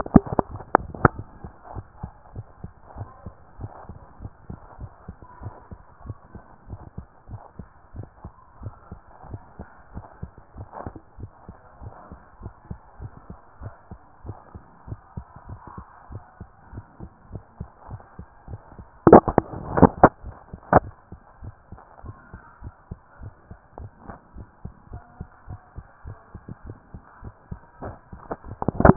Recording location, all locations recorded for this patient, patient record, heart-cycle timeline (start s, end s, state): tricuspid valve (TV)
aortic valve (AV)+pulmonary valve (PV)+tricuspid valve (TV)+mitral valve (MV)
#Age: Child
#Sex: Female
#Height: 135.0 cm
#Weight: 34.3 kg
#Pregnancy status: False
#Murmur: Absent
#Murmur locations: nan
#Most audible location: nan
#Systolic murmur timing: nan
#Systolic murmur shape: nan
#Systolic murmur grading: nan
#Systolic murmur pitch: nan
#Systolic murmur quality: nan
#Diastolic murmur timing: nan
#Diastolic murmur shape: nan
#Diastolic murmur grading: nan
#Diastolic murmur pitch: nan
#Diastolic murmur quality: nan
#Outcome: Abnormal
#Campaign: 2014 screening campaign
0.00	1.52	unannotated
1.52	1.74	diastole
1.74	1.86	S1
1.86	2.02	systole
2.02	2.12	S2
2.12	2.34	diastole
2.34	2.46	S1
2.46	2.62	systole
2.62	2.72	S2
2.72	2.94	diastole
2.94	3.08	S1
3.08	3.24	systole
3.24	3.34	S2
3.34	3.58	diastole
3.58	3.72	S1
3.72	3.88	systole
3.88	3.98	S2
3.98	4.20	diastole
4.20	4.30	S1
4.30	4.48	systole
4.48	4.58	S2
4.58	4.80	diastole
4.80	4.90	S1
4.90	5.08	systole
5.08	5.16	S2
5.16	5.40	diastole
5.40	5.54	S1
5.54	5.70	systole
5.70	5.80	S2
5.80	6.04	diastole
6.04	6.18	S1
6.18	6.36	systole
6.36	6.44	S2
6.44	6.68	diastole
6.68	6.78	S1
6.78	6.96	systole
6.96	7.06	S2
7.06	7.30	diastole
7.30	7.42	S1
7.42	7.60	systole
7.60	7.70	S2
7.70	7.94	diastole
7.94	8.06	S1
8.06	8.26	systole
8.26	8.36	S2
8.36	8.60	diastole
8.60	8.74	S1
8.74	8.92	systole
8.92	9.02	S2
9.02	9.28	diastole
9.28	9.42	S1
9.42	9.60	systole
9.60	9.70	S2
9.70	9.94	diastole
9.94	10.06	S1
10.06	10.22	systole
10.22	10.32	S2
10.32	10.54	diastole
10.54	10.66	S1
10.66	10.84	systole
10.84	10.94	S2
10.94	11.18	diastole
11.18	11.30	S1
11.30	11.48	systole
11.48	11.56	S2
11.56	11.80	diastole
11.80	11.94	S1
11.94	12.12	systole
12.12	12.20	S2
12.20	12.42	diastole
12.42	12.54	S1
12.54	12.70	systole
12.70	12.78	S2
12.78	13.00	diastole
13.00	13.12	S1
13.12	13.28	systole
13.28	13.38	S2
13.38	13.60	diastole
13.60	13.74	S1
13.74	13.92	systole
13.92	14.02	S2
14.02	14.24	diastole
14.24	14.36	S1
14.36	14.56	systole
14.56	14.66	S2
14.66	14.88	diastole
14.88	15.00	S1
15.00	15.18	systole
15.18	15.26	S2
15.26	15.48	diastole
15.48	15.60	S1
15.60	15.78	systole
15.78	15.88	S2
15.88	16.12	diastole
16.12	16.24	S1
16.24	16.42	systole
16.42	16.50	S2
16.50	16.72	diastole
16.72	16.84	S1
16.84	17.02	systole
17.02	17.10	S2
17.10	17.32	diastole
17.32	17.42	S1
17.42	17.58	systole
17.58	17.68	S2
17.68	17.90	diastole
17.90	28.96	unannotated